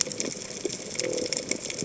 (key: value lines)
label: biophony
recorder: HydroMoth